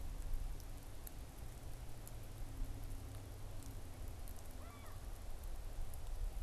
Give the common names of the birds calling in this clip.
unidentified bird